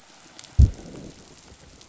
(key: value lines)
label: biophony, growl
recorder: SoundTrap 500